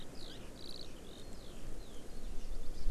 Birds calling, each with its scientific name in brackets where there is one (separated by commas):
Eurasian Skylark (Alauda arvensis)